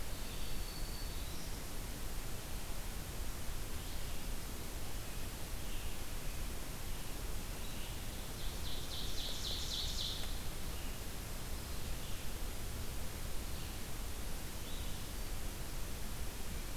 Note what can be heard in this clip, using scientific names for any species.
Vireo olivaceus, Setophaga virens, Seiurus aurocapilla